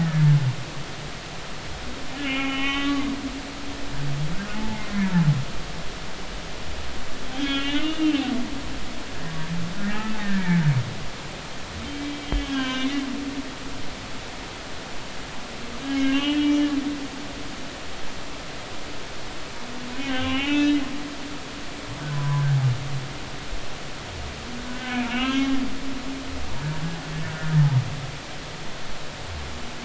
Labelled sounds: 0.0	0.2	humpback whale, 1.7 to 1.9 kHz
2.1	3.1	humpback whale, 1.1 to 3.1 kHz
4.5	5.3	humpback whale, 0.80 to 1.1 kHz
7.3	8.3	humpback whale, 1.6 to 3.6 kHz
10.2	10.6	humpback whale, 1.6 to 2.4 kHz
11.8	13.0	humpback whale, 0.96 to 6.6 kHz
15.8	16.7	humpback whale, 1.5 to 3.3 kHz
20.0	20.8	humpback whale, 0.80 to 3.9 kHz
22.1	22.5	humpback whale, 0.96 to 1.1 kHz
24.7	25.5	humpback whale, 1.2 to 3.3 kHz

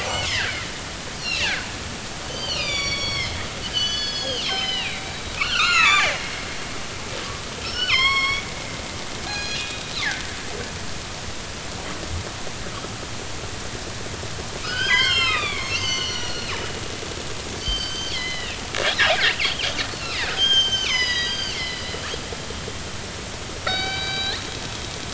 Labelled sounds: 0.0	0.6	killer whale, northern resident, G clan, 0.80 to 2.3 kHz
1.2	1.7	killer whale, northern resident, G clan, 1.4 to 4.6 kHz
2.3	6.2	killer whale, northern resident, G clan, 0.90 to 7.0 kHz
7.6	8.4	killer whale, northern resident, G clan, 0.99 to 5.6 kHz
9.3	9.9	killer whale, northern resident, G clan, 1.6 to 6.7 kHz
14.6	16.6	killer whale, northern resident, G clan, 0.93 to 7.7 kHz
17.6	18.6	killer whale, northern resident, G clan, 1.8 to 6.3 kHz
20.1	21.9	killer whale, northern resident, G clan, 0.93 to 6.5 kHz
23.6	24.4	killer whale, northern resident, G clan, 1.3 to 4.7 kHz

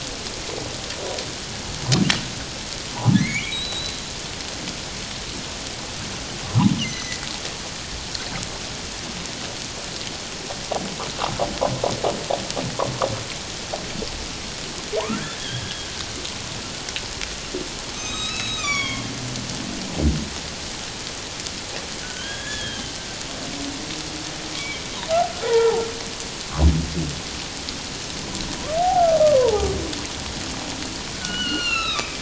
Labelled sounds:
2.9	4.0	humpback whale, 0.78 to 4.1 kHz
6.8	7.2	humpback whale, 1.9 to 6.3 kHz
15.0	15.9	humpback whale, 0.78 to 3.4 kHz
17.9	19.1	humpback whale, 1.0 to 7.7 kHz
22.0	22.9	humpback whale, 1.4 to 3.5 kHz
24.5	25.8	humpback whale, 0.78 to 2.4 kHz
28.8	29.7	humpback whale, 0.78 to 1.3 kHz
31.1	32.2	humpback whale, 1.1 to 4.3 kHz

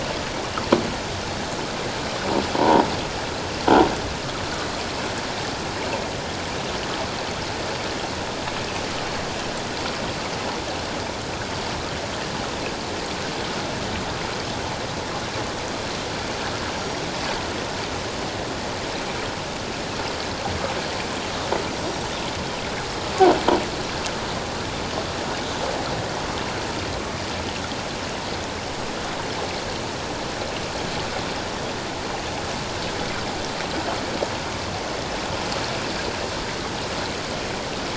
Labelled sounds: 2.6	2.9	croaking sound likely from a nearby submerged object, 0.81 to 1.1 kHz
16.8	17.0	Pacific white-sided dolphin, 5.4 to 5.7 kHz
21.8	22.1	Pacific white-sided dolphin, 7.4 to 7.6 kHz

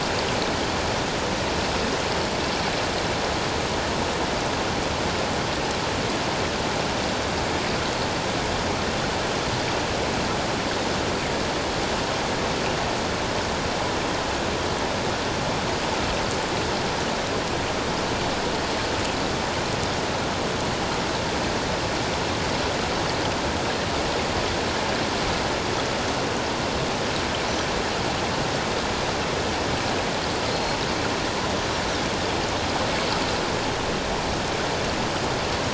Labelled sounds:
30.5	30.8	Pacific white-sided dolphin, 4.1 to 4.4 kHz

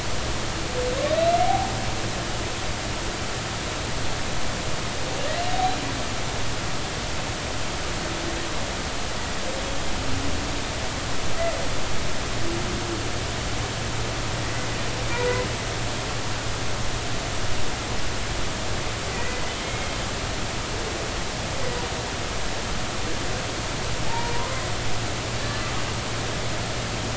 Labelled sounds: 1.4	1.7	humpback whale, 0.80 to 0.93 kHz
15.0	15.5	humpback whale, 0.93 to 2.5 kHz
19.1	19.9	humpback whale, 1.9 to 2.2 kHz
24.1	25.7	humpback whale, 0.80 to 4.3 kHz

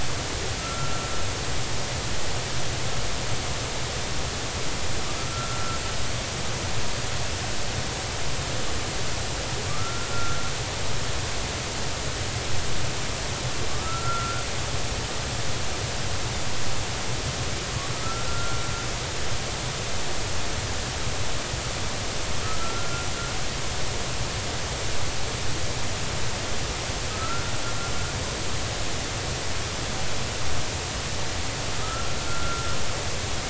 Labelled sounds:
0.6	1.1	humpback whale, 1.3 to 1.4 kHz
5.3	5.8	humpback whale, 1.3 to 1.5 kHz
9.7	10.4	humpback whale, 1.1 to 1.4 kHz
13.7	14.4	humpback whale, 1.1 to 1.5 kHz
18.0	18.6	humpback whale, 1.2 to 1.5 kHz
22.4	23.1	humpback whale, 1.2 to 1.4 kHz
27.1	27.5	humpback whale, 1.2 to 1.5 kHz
31.8	32.8	humpback whale, 1.2 to 1.5 kHz

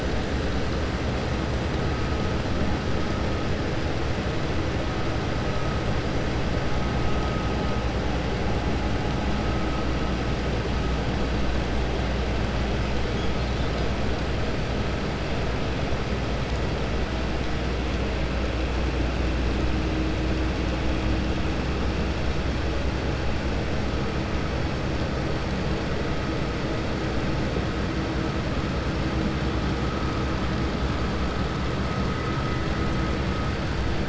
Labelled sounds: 13.1	13.9	killer whale, Bigg's (transient), 3.3 to 5.0 kHz

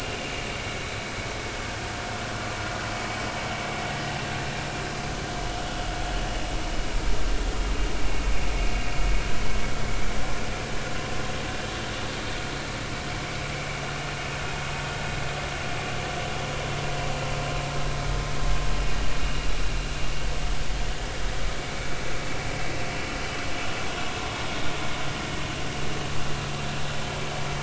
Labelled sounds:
19.2	19.5	vessel noise, 2.7 to 2.9 kHz

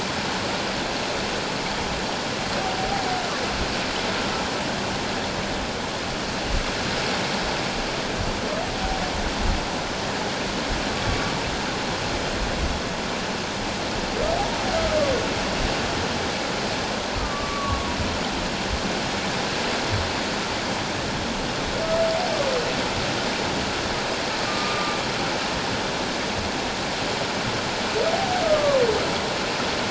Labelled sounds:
17.2	17.9	humpback whale, 1.1 to 1.3 kHz
24.4	25.0	humpback whale, 1.2 to 1.3 kHz
28.4	28.8	humpback whale, 1.0 to 1.3 kHz

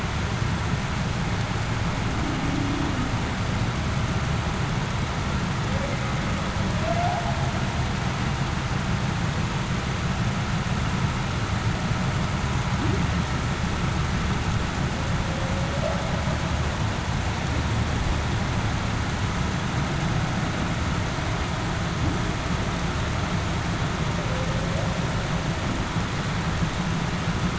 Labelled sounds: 2.5	2.9	humpback whale, 0.26 to 0.35 kHz
15.3	15.7	humpback whale, 0.49 to 0.58 kHz

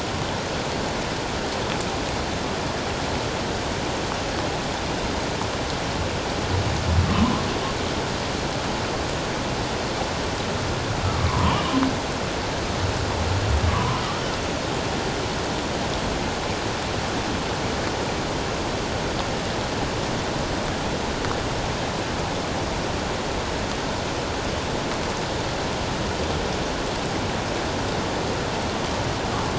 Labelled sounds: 7.1	7.4	humpback whale, 0.94 to 1.2 kHz
11.0	11.7	humpback whale, 0.88 to 3.0 kHz
13.7	14.0	humpback whale, 0.94 to 1.3 kHz

